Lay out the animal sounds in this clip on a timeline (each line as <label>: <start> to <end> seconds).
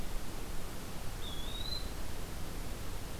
Eastern Wood-Pewee (Contopus virens): 1.1 to 2.0 seconds